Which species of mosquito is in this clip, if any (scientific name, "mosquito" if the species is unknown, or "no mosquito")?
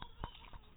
mosquito